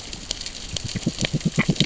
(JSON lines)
{"label": "biophony, grazing", "recorder": "SoundTrap 600 or HydroMoth"}